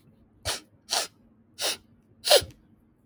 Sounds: Sniff